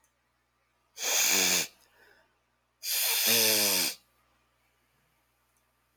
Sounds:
Sniff